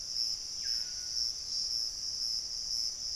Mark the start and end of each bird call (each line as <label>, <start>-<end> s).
Screaming Piha (Lipaugus vociferans), 0.0-1.6 s
Piratic Flycatcher (Legatus leucophaius), 0.0-3.1 s